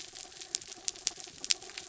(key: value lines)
label: anthrophony, mechanical
recorder: SoundTrap 300